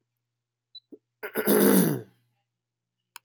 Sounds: Throat clearing